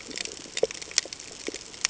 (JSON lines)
{"label": "ambient", "recorder": "HydroMoth"}